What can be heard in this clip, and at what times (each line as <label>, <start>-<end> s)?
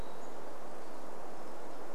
Hermit Thrush song, 0-2 s